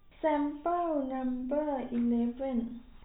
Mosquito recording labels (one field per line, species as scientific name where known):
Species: no mosquito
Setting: cup